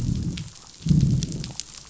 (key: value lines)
label: biophony, growl
recorder: SoundTrap 500